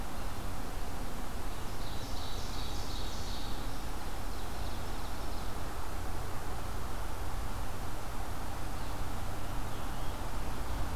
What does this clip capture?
Ovenbird, Yellow-bellied Sapsucker, Scarlet Tanager